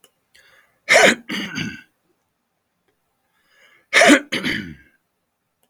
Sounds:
Throat clearing